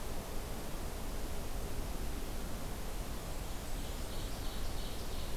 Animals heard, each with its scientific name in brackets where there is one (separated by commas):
Ovenbird (Seiurus aurocapilla)